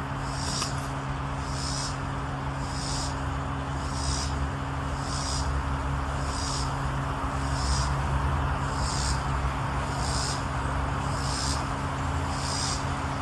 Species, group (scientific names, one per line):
Neotibicen robinsonianus
Cicadidae